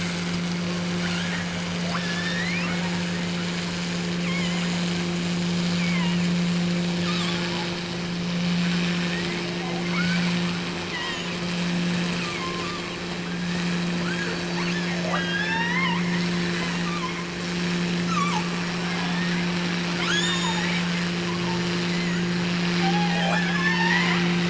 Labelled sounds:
1.0	3.5	killer whale, offshore, 0.36 to 5.9 kHz
4.2	4.8	killer whale, offshore, 0.68 to 3.3 kHz
5.7	6.5	killer whale, offshore, 0.80 to 3.4 kHz
6.9	7.8	killer whale, offshore, 0.70 to 5.5 kHz
8.6	9.5	killer whale, offshore, 1.3 to 3.0 kHz
9.8	10.4	killer whale, offshore, 0.84 to 3.5 kHz
10.7	11.4	killer whale, offshore, 0.80 to 4.3 kHz
12.0	16.1	killer whale, offshore, 0.52 to 6.3 kHz
17.9	19.5	killer whale, offshore, 0.66 to 8.0 kHz
19.9	20.9	killer whale, offshore, 0.73 to 7.6 kHz
21.2	22.3	killer whale, offshore, 0.75 to 4.3 kHz
22.7	24.4	killer whale, offshore, 0.55 to 5.8 kHz

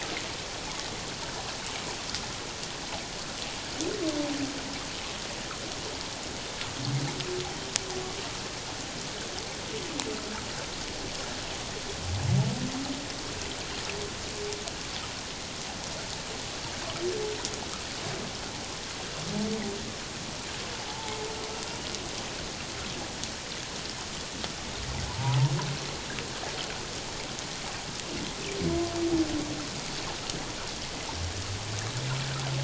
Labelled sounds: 20.7	21.2	humpback whale, 0.78 to 0.94 kHz
25.1	25.5	humpback whale, 0.78 to 1.1 kHz

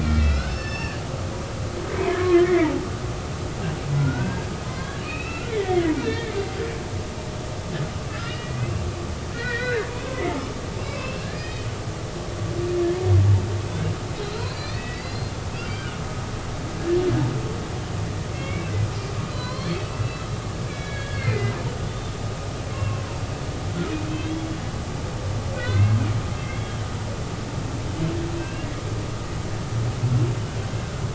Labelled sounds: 0.0	1.0	humpback whale, 1.5 to 5.6 kHz
2.2	2.9	humpback whale, 0.80 to 2.3 kHz
4.0	6.4	humpback whale, 0.96 to 2.8 kHz
8.1	9.9	humpback whale, 1.2 to 2.9 kHz
10.9	11.7	humpback whale, 1.6 to 5.1 kHz
14.3	15.3	humpback whale, 1.6 to 4.9 kHz
15.7	16.0	humpback whale, 1.4 to 2.4 kHz
18.3	18.7	humpback whale, 2.1 to 2.9 kHz
19.3	20.4	humpback whale, 0.96 to 4.6 kHz
20.7	21.5	humpback whale, 1.6 to 4.5 kHz
22.7	23.0	humpback whale, 2.5 to 2.8 kHz
24.1	24.5	humpback whale, 2.5 to 3.4 kHz
25.5	26.8	humpback whale, 1.4 to 4.3 kHz
28.4	28.7	humpback whale, 1.5 to 2.9 kHz

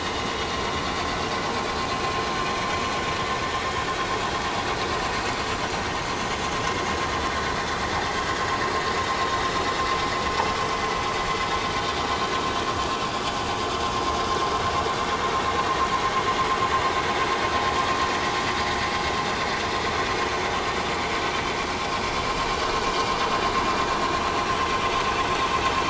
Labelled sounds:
0.2	0.5	vessel noise, 3.2 to 3.5 kHz
9.0	9.4	vessel noise, 3.6 to 5.7 kHz

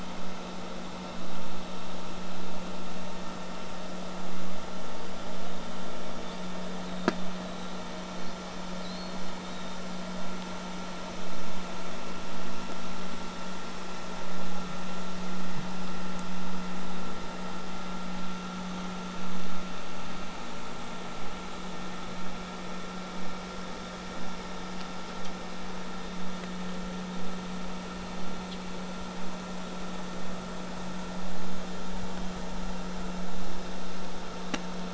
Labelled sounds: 6.2	7.7	killer whale, southern resident, J pod, whistle, 3.3 to 4.2 kHz
8.1	9.8	killer whale, southern resident, J pod, whistle, 3.3 to 5.0 kHz

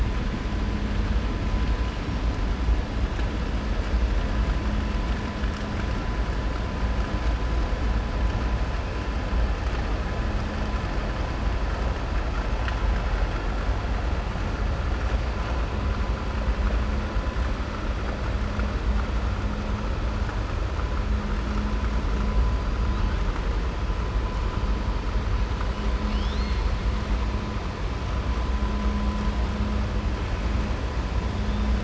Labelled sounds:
26.0	26.7	killer whale, southern resident, 2.1 to 6.4 kHz

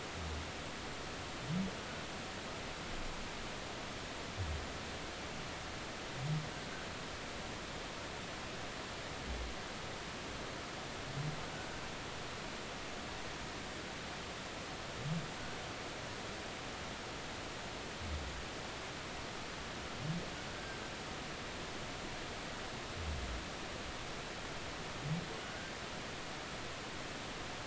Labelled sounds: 20.5	20.8	humpback whale, 1.5 to 1.6 kHz

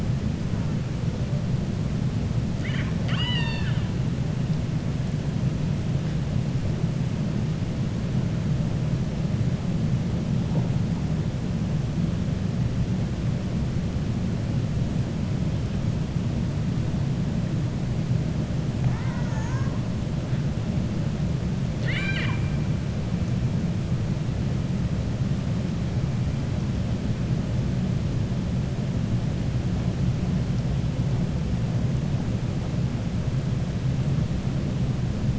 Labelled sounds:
2.5	3.9	killer whale, 0.93 to 7.3 kHz
18.8	19.7	killer whale, 0.68 to 2.1 kHz
21.7	22.4	killer whale, 1.0 to 7.8 kHz

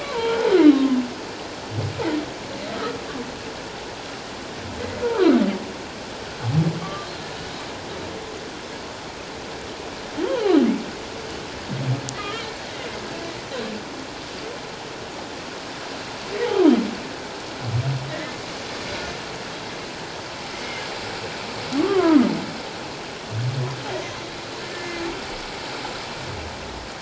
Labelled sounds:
0.0	1.0	humpback whale, 0.81 to 1.6 kHz
6.8	7.1	humpback whale, 1.1 to 1.2 kHz
12.2	12.5	humpback whale, 1.2 to 3.3 kHz
18.1	18.5	humpback whale, 1.7 to 2.2 kHz
20.5	20.8	humpback whale, 2.0 to 2.3 kHz
21.8	22.3	humpback whale, 0.91 to 1.5 kHz
24.7	25.0	humpback whale, 1.7 to 2.2 kHz

